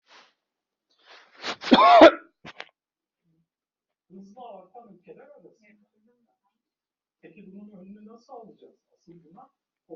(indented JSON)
{
  "expert_labels": [
    {
      "quality": "ok",
      "cough_type": "dry",
      "dyspnea": false,
      "wheezing": false,
      "stridor": false,
      "choking": false,
      "congestion": false,
      "nothing": true,
      "diagnosis": "COVID-19",
      "severity": "mild"
    },
    {
      "quality": "ok",
      "cough_type": "dry",
      "dyspnea": false,
      "wheezing": false,
      "stridor": false,
      "choking": false,
      "congestion": false,
      "nothing": true,
      "diagnosis": "upper respiratory tract infection",
      "severity": "mild"
    },
    {
      "quality": "good",
      "cough_type": "unknown",
      "dyspnea": false,
      "wheezing": false,
      "stridor": false,
      "choking": false,
      "congestion": false,
      "nothing": true,
      "diagnosis": "healthy cough",
      "severity": "pseudocough/healthy cough"
    },
    {
      "quality": "ok",
      "cough_type": "unknown",
      "dyspnea": false,
      "wheezing": false,
      "stridor": false,
      "choking": false,
      "congestion": false,
      "nothing": true,
      "diagnosis": "healthy cough",
      "severity": "unknown"
    }
  ],
  "age": 46,
  "gender": "male",
  "respiratory_condition": false,
  "fever_muscle_pain": false,
  "status": "healthy"
}